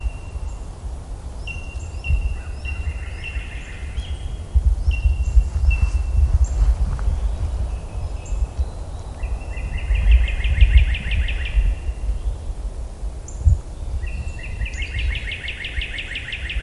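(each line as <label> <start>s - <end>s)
A bird screams loudly with a high-pitched call outdoors. 1.9s - 5.5s
Wind blowing strongly. 5.4s - 9.1s
A bird screams loudly with a high-pitched call outdoors. 8.9s - 16.6s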